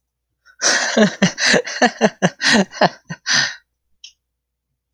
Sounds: Laughter